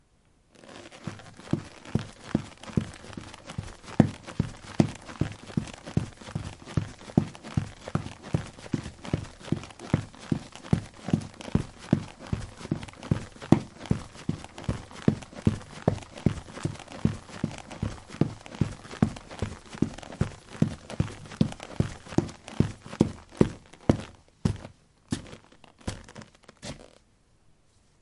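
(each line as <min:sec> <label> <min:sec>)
0:00.0 The sound of soil bending under the feet of a runner. 0:27.0
0:00.0 A person is running at a moderate pace. 0:27.8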